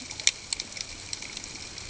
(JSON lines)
{"label": "ambient", "recorder": "HydroMoth"}